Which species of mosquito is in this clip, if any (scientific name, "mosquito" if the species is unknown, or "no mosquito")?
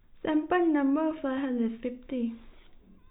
no mosquito